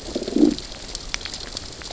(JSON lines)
{"label": "biophony, growl", "recorder": "SoundTrap 600 or HydroMoth"}